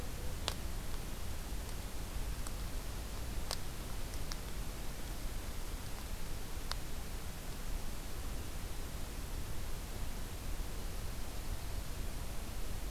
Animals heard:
forest ambience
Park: Acadia National Park